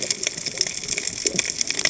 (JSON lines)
{"label": "biophony, cascading saw", "recorder": "HydroMoth"}